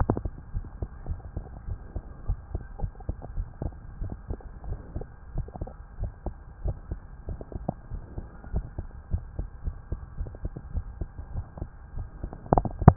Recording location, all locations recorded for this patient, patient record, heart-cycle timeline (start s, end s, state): tricuspid valve (TV)
aortic valve (AV)+pulmonary valve (PV)+tricuspid valve (TV)+mitral valve (MV)
#Age: Child
#Sex: Male
#Height: 127.0 cm
#Weight: 33.0 kg
#Pregnancy status: False
#Murmur: Absent
#Murmur locations: nan
#Most audible location: nan
#Systolic murmur timing: nan
#Systolic murmur shape: nan
#Systolic murmur grading: nan
#Systolic murmur pitch: nan
#Systolic murmur quality: nan
#Diastolic murmur timing: nan
#Diastolic murmur shape: nan
#Diastolic murmur grading: nan
#Diastolic murmur pitch: nan
#Diastolic murmur quality: nan
#Outcome: Normal
#Campaign: 2015 screening campaign
0.00	0.52	unannotated
0.52	0.64	S1
0.64	0.80	systole
0.80	0.88	S2
0.88	1.07	diastole
1.07	1.20	S1
1.20	1.34	systole
1.34	1.44	S2
1.44	1.65	diastole
1.65	1.78	S1
1.78	1.91	systole
1.91	2.02	S2
2.02	2.24	diastole
2.24	2.38	S1
2.38	2.51	systole
2.51	2.62	S2
2.62	2.79	diastole
2.79	2.92	S1
2.92	3.05	systole
3.05	3.16	S2
3.16	3.33	diastole
3.33	3.48	S1
3.48	3.62	systole
3.62	3.74	S2
3.74	3.97	diastole
3.97	4.12	S1
4.12	4.27	systole
4.27	4.40	S2
4.40	4.64	diastole
4.64	4.78	S1
4.78	4.92	systole
4.92	5.06	S2
5.06	5.34	diastole
5.34	5.48	S1
5.48	5.59	systole
5.59	5.72	S2
5.72	5.97	diastole
5.97	6.12	S1
6.12	6.23	systole
6.23	6.36	S2
6.36	6.62	diastole
6.62	6.78	S1
6.78	6.89	systole
6.89	7.02	S2
7.02	7.25	diastole
7.25	7.40	S1
7.40	7.52	systole
7.52	7.66	S2
7.66	7.89	diastole
7.89	8.02	S1
8.02	8.15	systole
8.15	8.28	S2
8.28	8.51	diastole
8.51	8.66	S1
8.66	12.96	unannotated